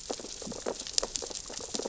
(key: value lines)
label: biophony, sea urchins (Echinidae)
recorder: SoundTrap 600 or HydroMoth